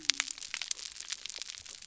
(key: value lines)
label: biophony
recorder: SoundTrap 300